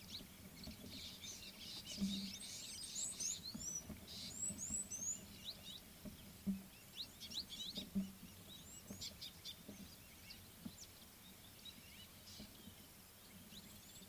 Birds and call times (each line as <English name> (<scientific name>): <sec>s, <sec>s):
White-browed Sparrow-Weaver (Plocepasser mahali): 1.1s
Superb Starling (Lamprotornis superbus): 2.2s
Red-cheeked Cordonbleu (Uraeginthus bengalus): 4.7s
Scarlet-chested Sunbird (Chalcomitra senegalensis): 9.3s